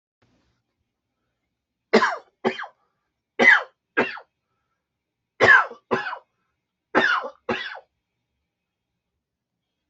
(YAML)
expert_labels:
- quality: good
  cough_type: unknown
  dyspnea: false
  wheezing: false
  stridor: false
  choking: false
  congestion: false
  nothing: true
  diagnosis: lower respiratory tract infection
  severity: unknown
age: 43
gender: male
respiratory_condition: true
fever_muscle_pain: false
status: healthy